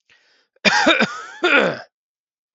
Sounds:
Throat clearing